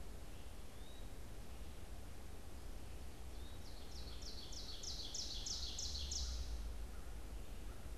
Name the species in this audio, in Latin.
Contopus virens, Seiurus aurocapilla, Corvus brachyrhynchos